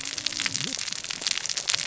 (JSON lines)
{"label": "biophony, cascading saw", "recorder": "SoundTrap 600 or HydroMoth"}